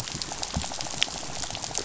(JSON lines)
{"label": "biophony, rattle", "recorder": "SoundTrap 500"}